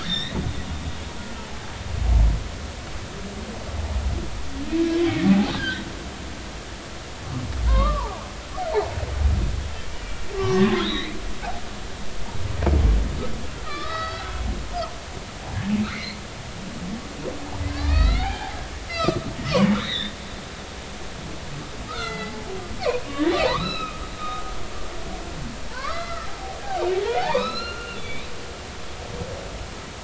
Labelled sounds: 0.0	0.4	humpback whale, 1.7 to 5.8 kHz
5.2	5.8	humpback whale, 0.80 to 3.3 kHz
7.6	8.2	humpback whale, 0.80 to 2.2 kHz
9.9	11.2	humpback whale, 0.99 to 4.1 kHz
13.6	14.3	humpback whale, 1.1 to 4.7 kHz
15.9	16.2	humpback whale, 1.9 to 2.3 kHz
17.7	19.2	humpback whale, 0.80 to 4.5 kHz
19.8	20.1	humpback whale, 1.6 to 4.1 kHz
21.9	22.5	humpback whale, 0.83 to 4.8 kHz
23.4	24.4	humpback whale, 0.80 to 4.1 kHz
25.7	26.3	humpback whale, 0.86 to 4.2 kHz
27.2	28.2	humpback whale, 0.80 to 4.3 kHz

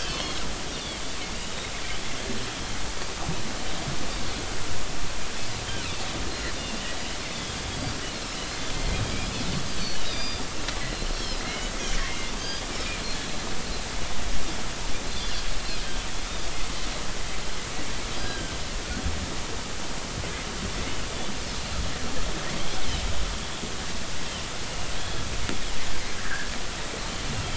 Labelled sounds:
0.0	0.4	Pacific white-sided dolphin, 2.8 to 4.6 kHz
6.3	7.6	Pacific white-sided dolphin, 3.1 to 4.3 kHz
10.0	10.5	Pacific white-sided dolphin, 2.3 to 5.1 kHz
11.1	12.6	Pacific white-sided dolphin, 1.9 to 5.6 kHz
18.1	18.5	Pacific white-sided dolphin, 1.5 to 4.9 kHz
26.2	26.5	Pacific white-sided dolphin, 1.3 to 1.9 kHz

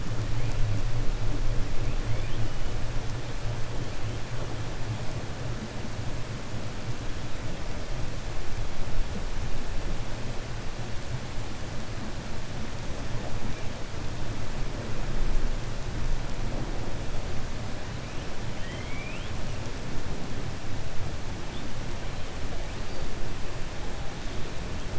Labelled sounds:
18.5	19.3	killer whale, 1.8 to 3.6 kHz

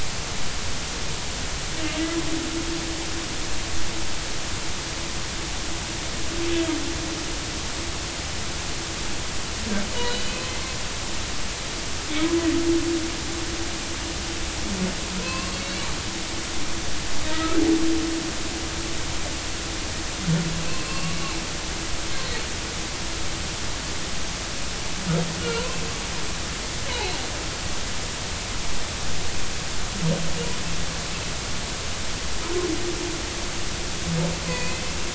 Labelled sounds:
10.0	10.5	humpback whale, 2.5 to 4.1 kHz
15.2	15.8	humpback whale, 0.99 to 4.5 kHz
17.3	17.6	humpback whale, 1.2 to 1.4 kHz
20.6	21.2	humpback whale, 1.0 to 4.4 kHz
25.4	25.8	humpback whale, 0.90 to 1.5 kHz
34.5	34.8	humpback whale, 0.93 to 2.6 kHz

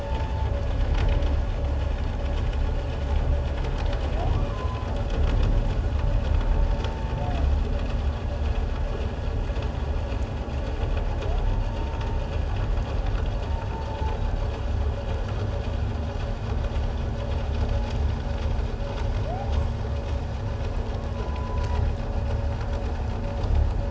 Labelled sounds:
4.4	4.9	humpback whale, 0.97 to 1.3 kHz
21.1	21.7	humpback whale, 0.94 to 1.1 kHz

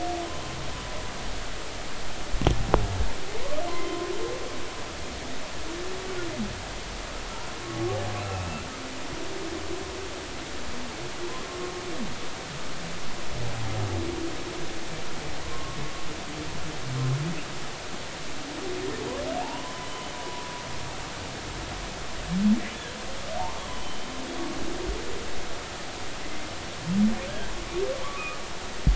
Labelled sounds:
3.7	4.1	humpback whale, 0.96 to 1.1 kHz
8.2	8.5	humpback whale, 2.5 to 2.7 kHz
15.4	15.8	humpback whale, 0.96 to 1.2 kHz
19.4	19.9	humpback whale, 0.80 to 1.1 kHz
23.7	24.1	humpback whale, 3.0 to 3.2 kHz
28.0	28.4	humpback whale, 0.99 to 1.3 kHz

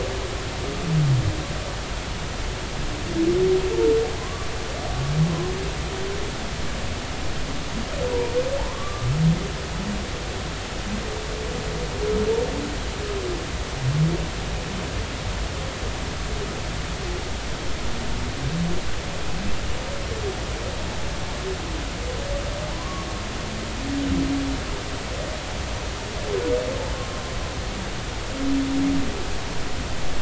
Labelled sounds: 4.2	4.5	humpback whale, 0.99 to 1.3 kHz
8.6	9.1	humpback whale, 0.80 to 1.3 kHz
22.7	23.1	humpback whale, 0.80 to 1.2 kHz
26.9	27.2	humpback whale, 1.0 to 1.1 kHz

